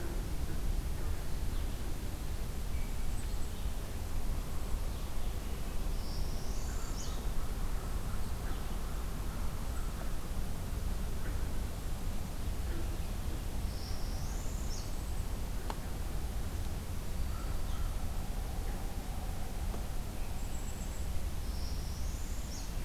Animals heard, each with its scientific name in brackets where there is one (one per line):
Hermit Thrush (Catharus guttatus)
Black-throated Green Warbler (Setophaga virens)
Northern Parula (Setophaga americana)